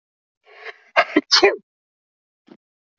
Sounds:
Sneeze